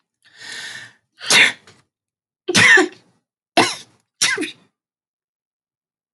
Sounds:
Sneeze